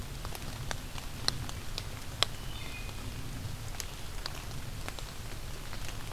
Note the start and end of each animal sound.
2.0s-3.0s: Wood Thrush (Hylocichla mustelina)

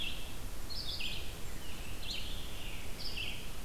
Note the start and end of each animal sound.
0.0s-3.6s: Red-eyed Vireo (Vireo olivaceus)
0.8s-2.1s: Blackburnian Warbler (Setophaga fusca)
1.5s-3.6s: Scarlet Tanager (Piranga olivacea)

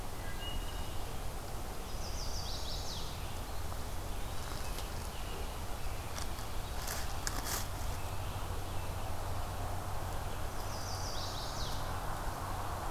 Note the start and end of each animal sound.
0.1s-0.9s: Wood Thrush (Hylocichla mustelina)
1.8s-3.2s: Chestnut-sided Warbler (Setophaga pensylvanica)
3.4s-4.7s: Eastern Wood-Pewee (Contopus virens)
10.4s-11.9s: Chestnut-sided Warbler (Setophaga pensylvanica)

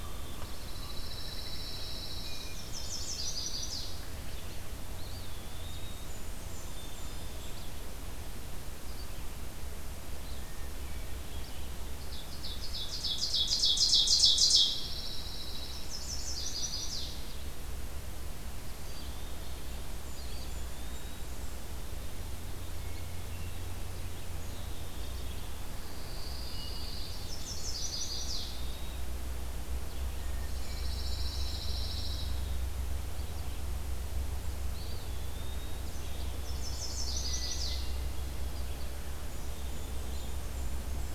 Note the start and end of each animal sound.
0.0s-1.0s: Common Raven (Corvus corax)
0.0s-19.5s: Red-eyed Vireo (Vireo olivaceus)
0.3s-2.8s: Dark-eyed Junco (Junco hyemalis)
2.3s-3.4s: Hermit Thrush (Catharus guttatus)
2.5s-4.1s: Chestnut-sided Warbler (Setophaga pensylvanica)
4.8s-6.2s: Eastern Wood-Pewee (Contopus virens)
5.7s-7.7s: Blackburnian Warbler (Setophaga fusca)
10.2s-11.7s: Hermit Thrush (Catharus guttatus)
11.8s-15.1s: Ovenbird (Seiurus aurocapilla)
14.3s-16.1s: Pine Warbler (Setophaga pinus)
15.7s-17.4s: Chestnut-sided Warbler (Setophaga pensylvanica)
20.0s-21.5s: Eastern Wood-Pewee (Contopus virens)
20.1s-21.8s: Blackburnian Warbler (Setophaga fusca)
22.7s-24.1s: Hermit Thrush (Catharus guttatus)
25.8s-27.3s: Dark-eyed Junco (Junco hyemalis)
26.3s-27.5s: Hermit Thrush (Catharus guttatus)
27.1s-29.1s: Chestnut-sided Warbler (Setophaga pensylvanica)
27.9s-29.2s: Eastern Wood-Pewee (Contopus virens)
29.9s-32.3s: Blackburnian Warbler (Setophaga fusca)
30.0s-31.0s: Hermit Thrush (Catharus guttatus)
30.3s-32.6s: Pine Warbler (Setophaga pinus)
34.5s-35.9s: Eastern Wood-Pewee (Contopus virens)
36.2s-38.0s: Chestnut-sided Warbler (Setophaga pensylvanica)
38.2s-40.8s: Red-eyed Vireo (Vireo olivaceus)
39.4s-41.1s: Blackburnian Warbler (Setophaga fusca)

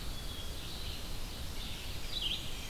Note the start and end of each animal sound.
0.0s-1.3s: Eastern Wood-Pewee (Contopus virens)
0.0s-2.7s: Red-eyed Vireo (Vireo olivaceus)
0.5s-2.4s: Ovenbird (Seiurus aurocapilla)
2.1s-2.7s: Black-and-white Warbler (Mniotilta varia)

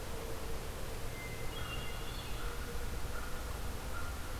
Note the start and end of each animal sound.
1.1s-2.7s: Hermit Thrush (Catharus guttatus)
1.4s-4.4s: American Crow (Corvus brachyrhynchos)

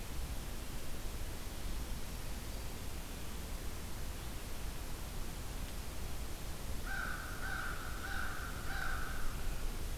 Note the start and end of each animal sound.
6.7s-9.4s: American Crow (Corvus brachyrhynchos)

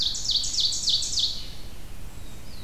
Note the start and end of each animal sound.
0.0s-1.6s: Ovenbird (Seiurus aurocapilla)
0.0s-2.6s: Red-eyed Vireo (Vireo olivaceus)

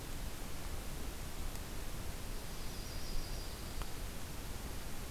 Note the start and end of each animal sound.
2.2s-4.0s: Dark-eyed Junco (Junco hyemalis)
2.5s-3.6s: Yellow-rumped Warbler (Setophaga coronata)

